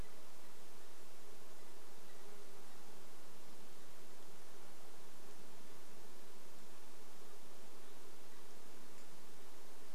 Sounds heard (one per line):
unidentified sound